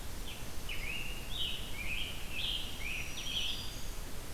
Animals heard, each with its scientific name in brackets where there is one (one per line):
Scarlet Tanager (Piranga olivacea)
Black-throated Green Warbler (Setophaga virens)